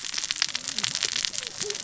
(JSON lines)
{"label": "biophony, cascading saw", "recorder": "SoundTrap 600 or HydroMoth"}